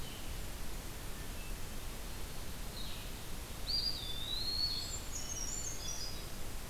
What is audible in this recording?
Blue-headed Vireo, Hermit Thrush, Eastern Wood-Pewee, Brown Creeper